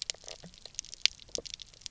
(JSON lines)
{"label": "biophony, knock croak", "recorder": "SoundTrap 300"}